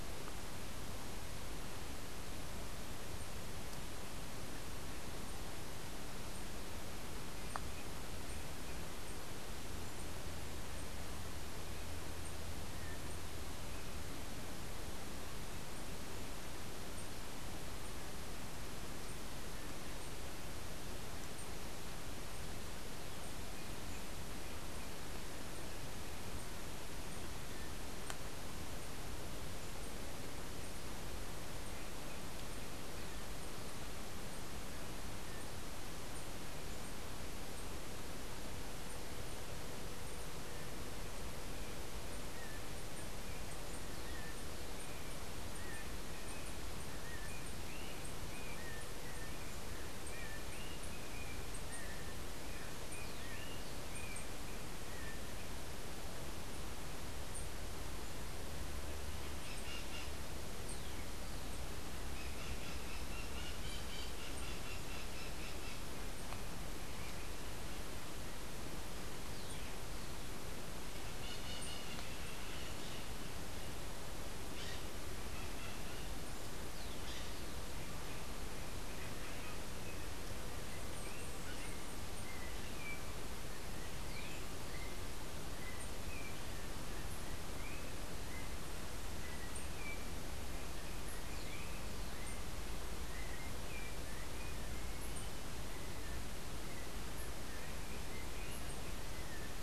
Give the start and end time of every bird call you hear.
[45.45, 55.25] Yellow-backed Oriole (Icterus chrysater)
[59.45, 65.95] Bronze-winged Parrot (Pionus chalcopterus)
[71.05, 72.05] Bronze-winged Parrot (Pionus chalcopterus)

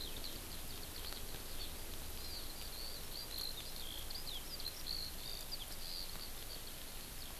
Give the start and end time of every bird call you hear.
[0.00, 7.30] Eurasian Skylark (Alauda arvensis)

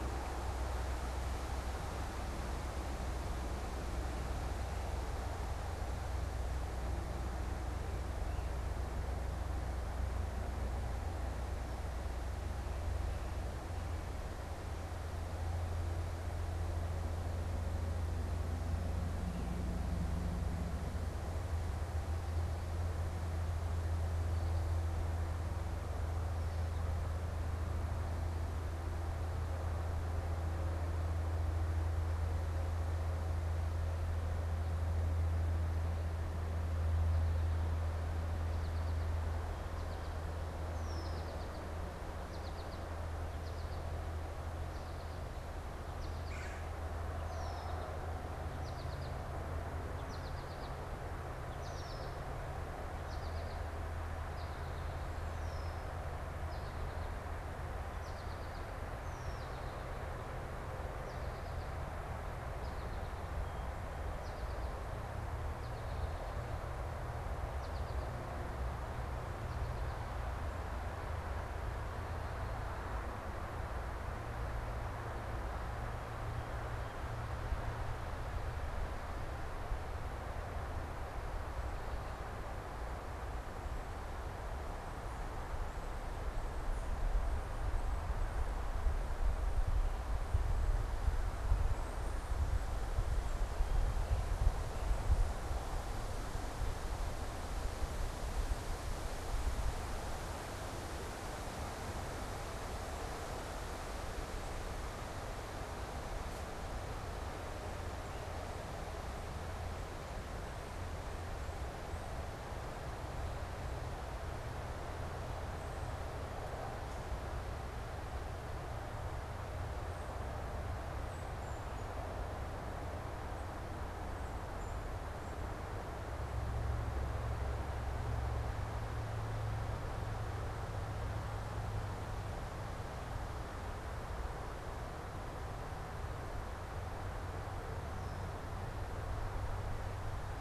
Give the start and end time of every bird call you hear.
[38.29, 66.39] American Goldfinch (Spinus tristis)
[40.69, 41.29] Red-winged Blackbird (Agelaius phoeniceus)
[46.09, 46.79] Red-bellied Woodpecker (Melanerpes carolinus)
[47.19, 47.69] Red-winged Blackbird (Agelaius phoeniceus)
[51.49, 52.09] Red-winged Blackbird (Agelaius phoeniceus)
[55.19, 55.89] Red-winged Blackbird (Agelaius phoeniceus)
[58.99, 59.49] Red-winged Blackbird (Agelaius phoeniceus)
[67.39, 70.49] American Goldfinch (Spinus tristis)
[120.89, 124.99] unidentified bird

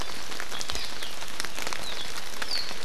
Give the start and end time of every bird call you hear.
[0.69, 0.89] Hawaii Amakihi (Chlorodrepanis virens)
[2.39, 2.69] Warbling White-eye (Zosterops japonicus)

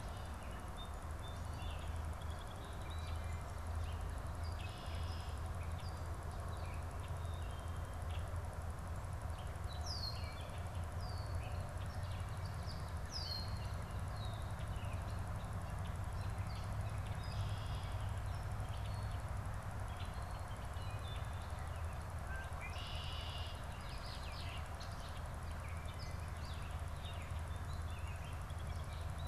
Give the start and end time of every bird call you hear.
[0.75, 3.35] Song Sparrow (Melospiza melodia)
[3.75, 8.75] Gray Catbird (Dumetella carolinensis)
[4.05, 5.55] Red-winged Blackbird (Agelaius phoeniceus)
[9.65, 13.85] Red-winged Blackbird (Agelaius phoeniceus)
[9.95, 29.25] Gray Catbird (Dumetella carolinensis)
[16.95, 18.25] Red-winged Blackbird (Agelaius phoeniceus)
[22.15, 23.75] Red-winged Blackbird (Agelaius phoeniceus)

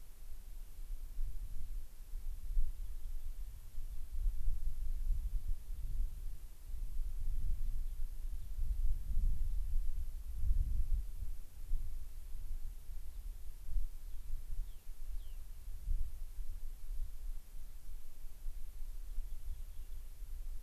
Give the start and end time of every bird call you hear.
[14.00, 15.50] Gray-crowned Rosy-Finch (Leucosticte tephrocotis)
[19.00, 20.10] Rock Wren (Salpinctes obsoletus)

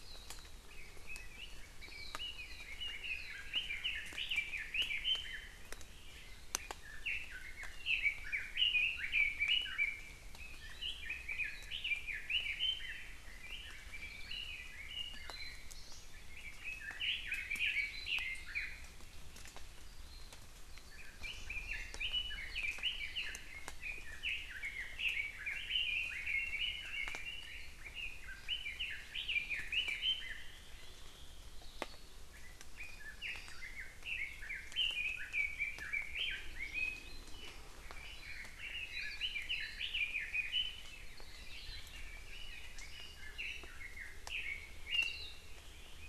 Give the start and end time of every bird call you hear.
[0.00, 0.60] Warbling White-eye (Zosterops japonicus)
[0.70, 5.60] Red-billed Leiothrix (Leiothrix lutea)
[2.30, 2.60] Warbling White-eye (Zosterops japonicus)
[3.10, 3.40] Warbling White-eye (Zosterops japonicus)
[6.80, 15.80] Red-billed Leiothrix (Leiothrix lutea)
[15.10, 15.70] Hawaii Amakihi (Chlorodrepanis virens)
[16.10, 18.90] Red-billed Leiothrix (Leiothrix lutea)
[17.70, 18.20] Hawaii Amakihi (Chlorodrepanis virens)
[20.90, 30.60] Red-billed Leiothrix (Leiothrix lutea)
[32.20, 37.60] Red-billed Leiothrix (Leiothrix lutea)
[33.20, 33.70] Hawaii Amakihi (Chlorodrepanis virens)
[37.90, 45.50] Red-billed Leiothrix (Leiothrix lutea)
[38.90, 39.20] Warbling White-eye (Zosterops japonicus)
[39.50, 39.90] Warbling White-eye (Zosterops japonicus)

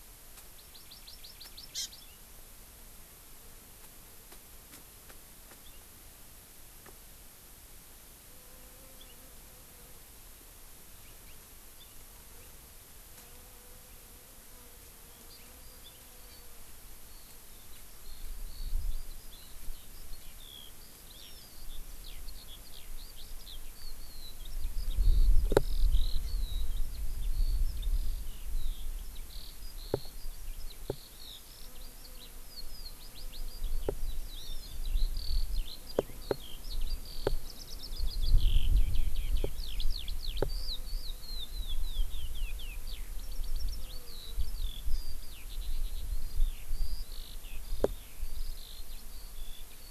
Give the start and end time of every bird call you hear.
[0.33, 0.43] Japanese Bush Warbler (Horornis diphone)
[0.53, 2.03] Hawaii Amakihi (Chlorodrepanis virens)
[4.23, 5.13] Japanese Bush Warbler (Horornis diphone)
[5.43, 5.53] Japanese Bush Warbler (Horornis diphone)
[6.83, 6.93] Japanese Bush Warbler (Horornis diphone)
[15.13, 49.91] Eurasian Skylark (Alauda arvensis)
[15.33, 15.53] Hawaii Amakihi (Chlorodrepanis virens)
[16.23, 16.43] Hawaii Amakihi (Chlorodrepanis virens)

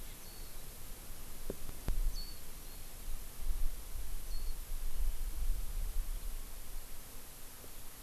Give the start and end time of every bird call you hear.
[0.24, 0.64] Warbling White-eye (Zosterops japonicus)
[2.14, 2.94] Warbling White-eye (Zosterops japonicus)
[4.24, 4.54] Warbling White-eye (Zosterops japonicus)

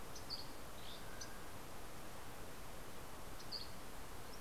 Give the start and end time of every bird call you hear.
[0.00, 1.50] Dusky Flycatcher (Empidonax oberholseri)
[0.70, 2.80] Mountain Quail (Oreortyx pictus)
[3.00, 4.30] Dusky Flycatcher (Empidonax oberholseri)

